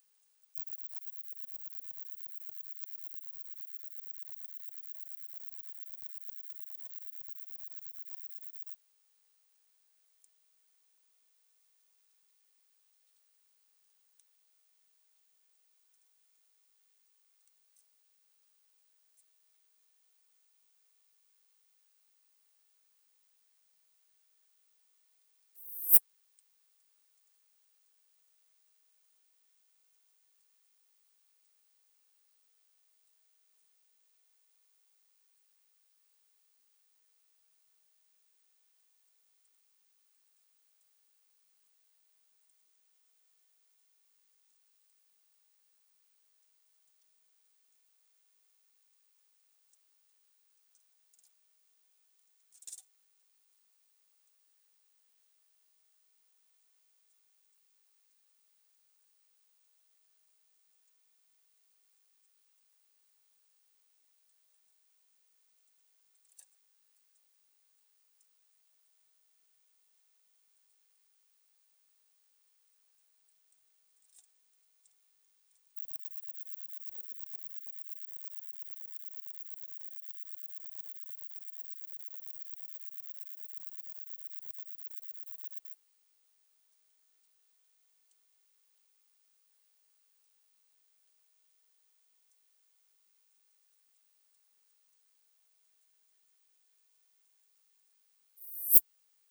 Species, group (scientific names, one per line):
Poecilimon hoelzeli
Orthoptera